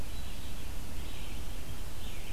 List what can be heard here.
Red-eyed Vireo